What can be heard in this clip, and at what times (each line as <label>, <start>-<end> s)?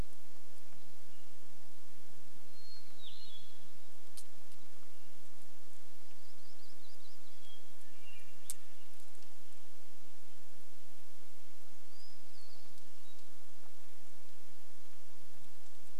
Hermit Thrush song, 0-14 s
warbler song, 6-8 s
warbler song, 10-12 s